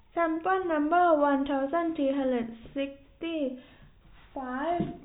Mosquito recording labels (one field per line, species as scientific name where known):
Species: no mosquito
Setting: cup